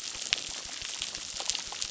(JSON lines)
{"label": "biophony, crackle", "recorder": "SoundTrap 600"}